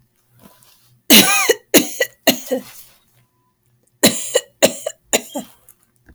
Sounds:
Cough